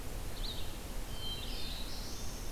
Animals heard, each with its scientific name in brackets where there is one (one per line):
Red-eyed Vireo (Vireo olivaceus)
Black-throated Blue Warbler (Setophaga caerulescens)